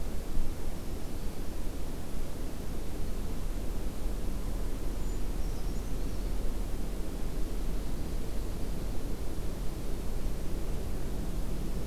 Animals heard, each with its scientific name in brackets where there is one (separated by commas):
Brown Creeper (Certhia americana), Black-throated Green Warbler (Setophaga virens)